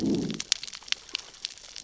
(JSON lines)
{"label": "biophony, growl", "recorder": "SoundTrap 600 or HydroMoth"}